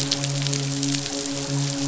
{"label": "biophony, midshipman", "recorder": "SoundTrap 500"}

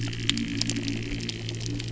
{"label": "anthrophony, boat engine", "recorder": "SoundTrap 300"}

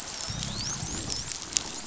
{"label": "biophony, dolphin", "recorder": "SoundTrap 500"}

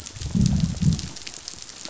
{"label": "biophony, growl", "recorder": "SoundTrap 500"}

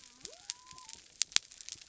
{"label": "biophony", "recorder": "SoundTrap 300"}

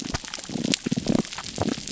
{"label": "biophony, damselfish", "recorder": "SoundTrap 300"}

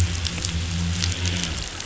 {"label": "anthrophony, boat engine", "recorder": "SoundTrap 500"}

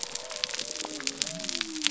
{"label": "biophony", "recorder": "SoundTrap 300"}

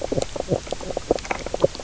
{"label": "biophony, knock croak", "recorder": "SoundTrap 300"}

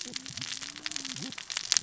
{"label": "biophony, cascading saw", "recorder": "SoundTrap 600 or HydroMoth"}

